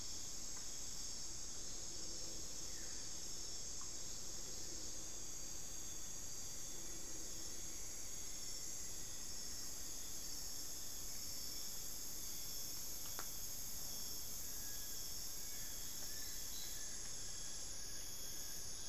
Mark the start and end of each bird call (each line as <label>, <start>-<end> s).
Buff-throated Woodcreeper (Xiphorhynchus guttatus), 2.5-3.1 s
Rufous-fronted Antthrush (Formicarius rufifrons), 6.3-11.0 s
Fasciated Antshrike (Cymbilaimus lineatus), 14.2-18.7 s